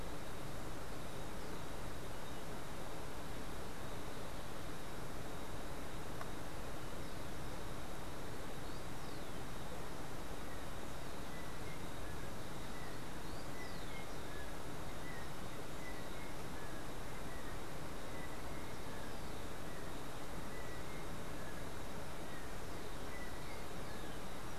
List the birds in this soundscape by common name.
Rufous-collared Sparrow, Yellow-backed Oriole